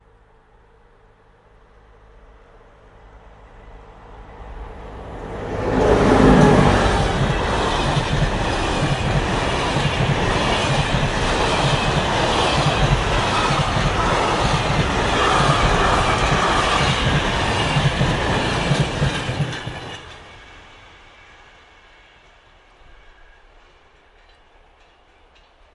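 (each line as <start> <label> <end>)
0.0 A rising humming noise. 4.6
4.5 A train is approaching loudly. 6.9
6.8 Rhythmic noises of a train passing by. 20.0
19.9 A train is moving away in the distance. 25.7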